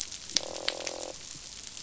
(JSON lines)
{"label": "biophony, croak", "recorder": "SoundTrap 500"}